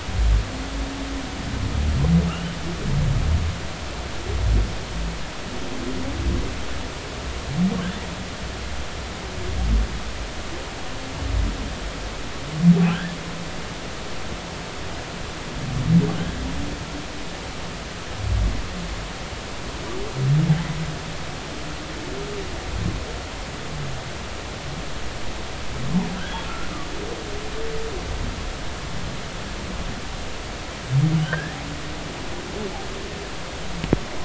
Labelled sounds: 2.3	2.6	humpback whale, 2.6 to 3.1 kHz
7.8	8.1	humpback whale, 1.5 to 2.0 kHz
12.9	13.1	humpback whale, 1.2 to 1.9 kHz
31.2	31.6	humpback whale, 1.4 to 3.3 kHz

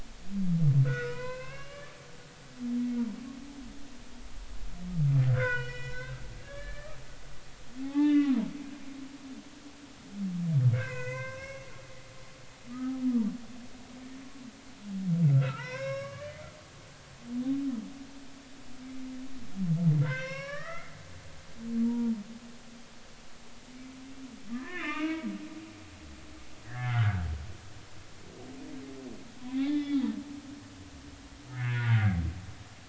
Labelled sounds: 0.8	2.0	humpback whale, 0.93 to 4.2 kHz
5.3	7.0	humpback whale, 0.93 to 5.5 kHz
7.8	9.2	humpback whale, 0.80 to 3.6 kHz
10.7	11.7	humpback whale, 0.90 to 6.3 kHz
12.7	13.0	humpback whale, 1.1 to 1.3 kHz
15.3	16.4	humpback whale, 0.86 to 5.6 kHz
20.0	20.9	humpback whale, 0.99 to 5.7 kHz
21.8	22.1	humpback whale, 0.90 to 0.99 kHz
24.5	25.3	humpback whale, 0.96 to 3.7 kHz
26.6	27.3	humpback whale, 1.3 to 2.0 kHz
29.4	30.1	humpback whale, 0.80 to 3.7 kHz
31.5	32.0	humpback whale, 1.3 to 2.3 kHz

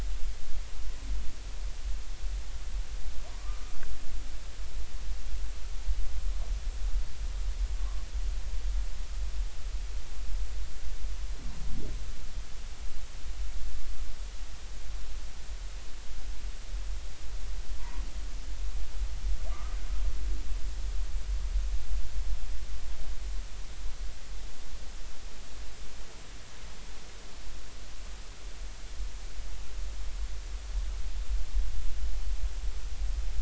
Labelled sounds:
18.8	19.8	humpback whale, 0.86 to 1.3 kHz

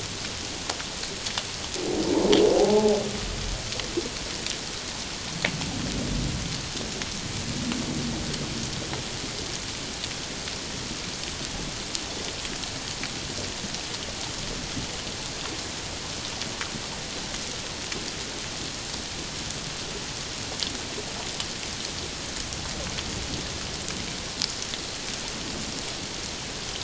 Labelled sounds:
2.6	3.0	humpback whale, 0.78 to 0.91 kHz

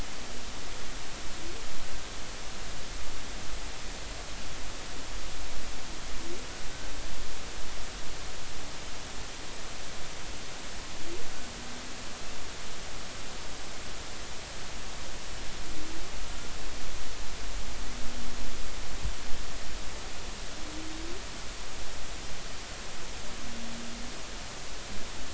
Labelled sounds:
16.2	16.5	humpback whale, 1.2 to 1.4 kHz

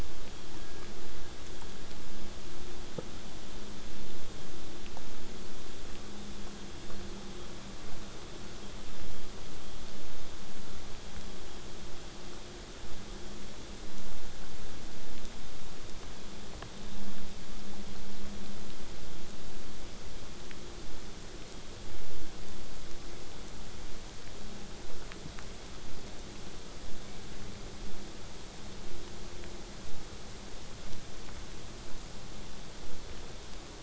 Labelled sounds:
13.8	15.3	killer whale, southern resident, 0.89 to 8.0 kHz
32.8	33.8	vessel noise, 0.24 to 8.0 kHz

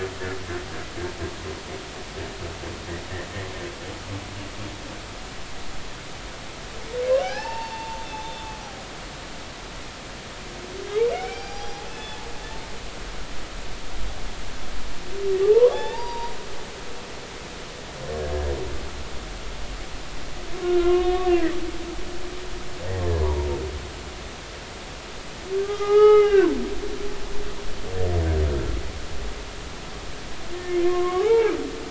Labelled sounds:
7.1	8.6	humpback whale, 0.80 to 5.5 kHz
10.9	12.2	humpback whale, 0.80 to 5.8 kHz
15.4	16.3	humpback whale, 0.80 to 3.9 kHz
20.6	21.3	humpback whale, 0.99 to 3.7 kHz
22.3	23.5	humpback whale, 0.90 to 1.8 kHz
25.6	26.5	humpback whale, 0.80 to 5.1 kHz
30.5	31.6	humpback whale, 0.80 to 2.5 kHz

